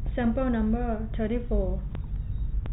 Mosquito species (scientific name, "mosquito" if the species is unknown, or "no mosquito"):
no mosquito